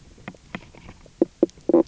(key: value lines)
label: biophony, knock croak
recorder: SoundTrap 300